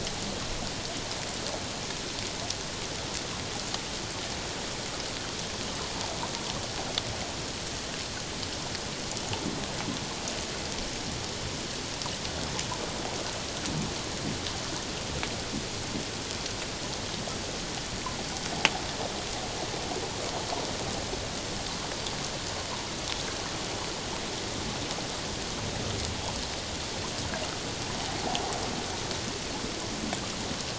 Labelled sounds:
28.2	28.4	water noise, 0.78 to 0.88 kHz

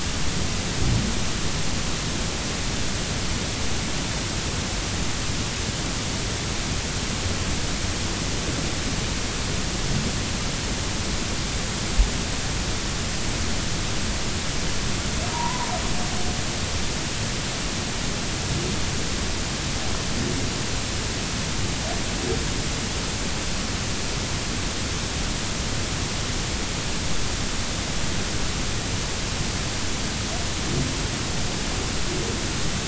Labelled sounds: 15.3	15.7	humpback whale, 0.86 to 1.1 kHz

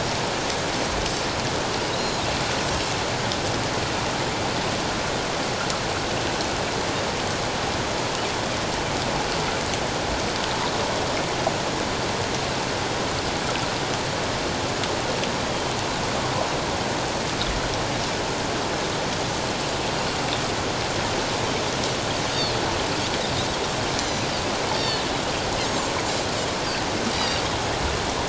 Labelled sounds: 2.0	2.2	Pacific white-sided dolphin, 6.7 to 7.0 kHz
24.0	25.0	Pacific white-sided dolphin, 1.7 to 6.2 kHz
27.1	27.4	Pacific white-sided dolphin, 4.6 to 5.0 kHz

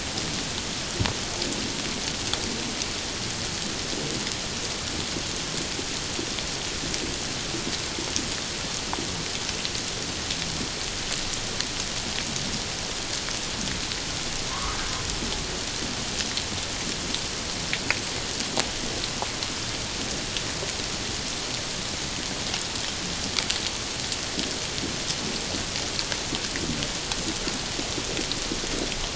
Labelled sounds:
14.5	14.8	humpback whale, 0.94 to 1.4 kHz

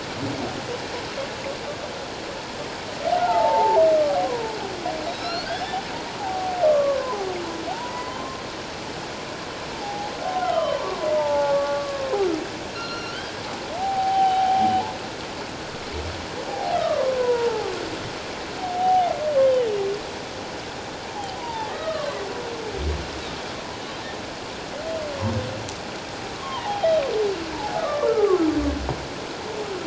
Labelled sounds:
3.1	4.2	humpback whale, 0.78 to 1.6 kHz
5.1	5.8	humpback whale, 1.3 to 6.0 kHz
6.2	7.2	humpback whale, 0.78 to 1.2 kHz
7.7	8.4	humpback whale, 0.78 to 2.1 kHz
9.7	10.8	humpback whale, 0.78 to 3.2 kHz
11.2	12.2	humpback whale, 0.78 to 1.2 kHz
12.7	14.7	humpback whale, 0.78 to 5.8 kHz
16.5	17.7	humpback whale, 0.78 to 1.5 kHz
18.6	19.1	humpback whale, 0.78 to 3.0 kHz
21.1	22.2	humpback whale, 0.78 to 1.3 kHz
26.3	27.0	humpback whale, 0.78 to 3.3 kHz
27.8	28.4	humpback whale, 1.0 to 1.4 kHz

